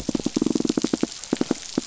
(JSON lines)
{"label": "biophony", "recorder": "SoundTrap 500"}